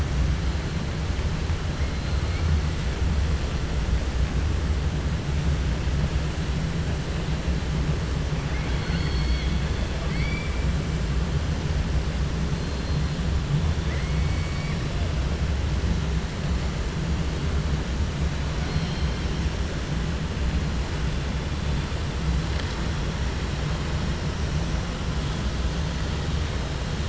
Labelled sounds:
8.4	9.6	killer whale, 1.4 to 4.6 kHz
10.0	10.6	killer whale, 1.2 to 4.8 kHz
13.8	14.8	killer whale, 1.2 to 2.8 kHz
18.6	19.2	killer whale, 2.2 to 4.3 kHz

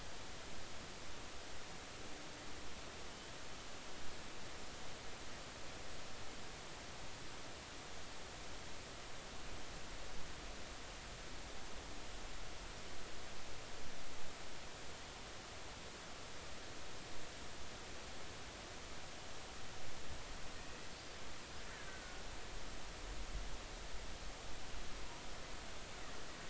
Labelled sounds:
21.9	22.2	killer whale, Bigg's (transient), 1.4 to 1.6 kHz

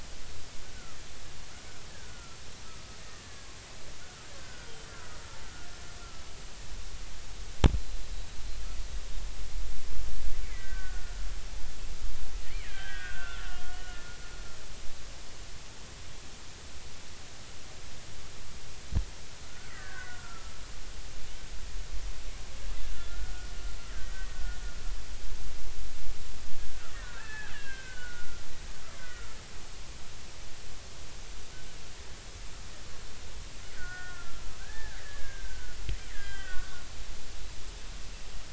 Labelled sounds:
1.9	3.5	killer whale, Bigg's (transient), 1.2 to 1.8 kHz
4.0	4.9	killer whale, Bigg's (transient), 1.2 to 5.1 kHz
5.4	5.7	killer whale, Bigg's (transient), 1.4 to 1.6 kHz
10.4	11.3	killer whale, Bigg's (transient), 1.3 to 2.4 kHz
12.4	14.0	killer whale, Bigg's (transient), 1.3 to 3.5 kHz
19.4	20.6	killer whale, Bigg's (transient), 0.99 to 2.0 kHz
22.8	24.6	killer whale, Bigg's (transient), 1.3 to 2.0 kHz
26.6	28.5	killer whale, Bigg's (transient), 1.2 to 3.3 kHz
28.9	29.4	killer whale, Bigg's (transient), 1.3 to 2.1 kHz
33.7	36.8	killer whale, Bigg's (transient), 1.3 to 3.3 kHz

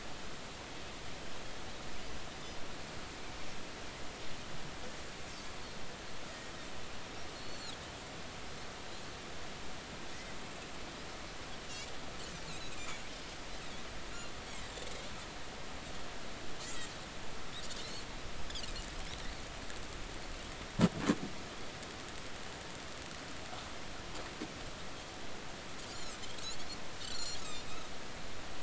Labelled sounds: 7.3	7.7	Pacific white-sided dolphin, 3.7 to 4.5 kHz
12.5	13.0	Pacific white-sided dolphin, 2.2 to 6.9 kHz
17.6	17.9	Pacific white-sided dolphin, 1.8 to 2.0 kHz
25.9	26.2	Pacific white-sided dolphin, 4.9 to 7.2 kHz
26.9	27.7	Pacific white-sided dolphin, 4.0 to 8.0 kHz

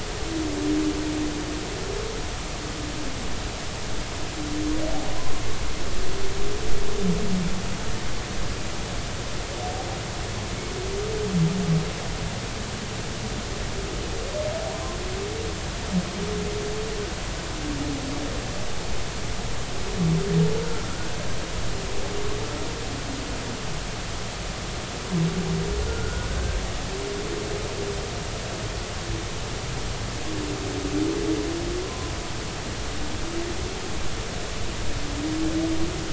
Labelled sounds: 5.2	5.4	humpback whale, 0.99 to 1.1 kHz
20.6	20.9	humpback whale, 1.3 to 1.6 kHz
25.9	26.3	humpback whale, 1.4 to 1.5 kHz
31.8	32.1	humpback whale, 0.96 to 1.1 kHz

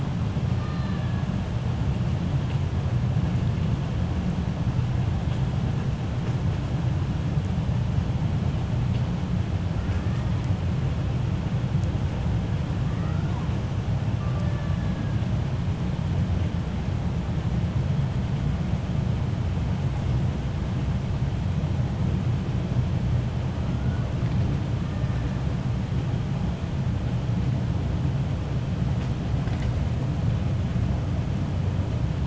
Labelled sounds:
0.5	1.2	killer whale, 1.1 to 2.5 kHz
14.2	15.1	killer whale, 0.58 to 1.8 kHz

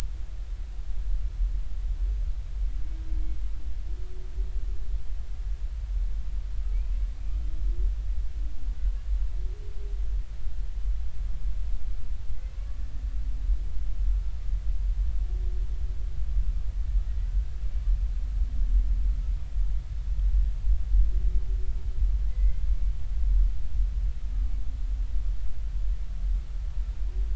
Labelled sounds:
6.7	7.0	humpback whale, 2.2 to 2.7 kHz
12.5	12.8	humpback whale, 1.0 to 1.2 kHz
22.3	22.9	humpback whale, 2.0 to 2.3 kHz

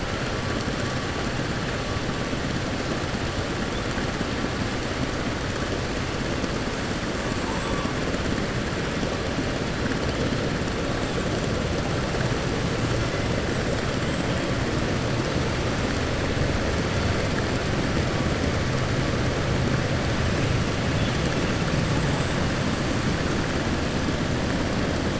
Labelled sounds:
7.2	7.9	killer whale, 6.5 to 8.0 kHz

